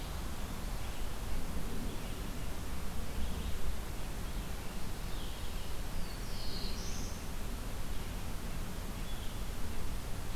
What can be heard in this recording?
Red-eyed Vireo, Black-throated Blue Warbler